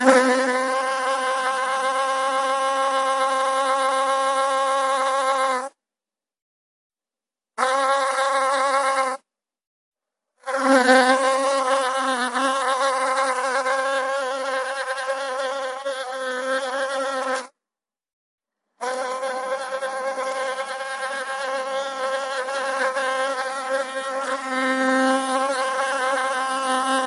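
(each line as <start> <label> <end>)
0.0 Periodic buzzing of a bee, fly, wasp, or similar insect, followed by occasional silence. 27.1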